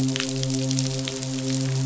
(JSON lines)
{"label": "biophony, midshipman", "recorder": "SoundTrap 500"}